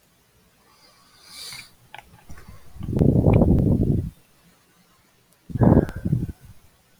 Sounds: Sigh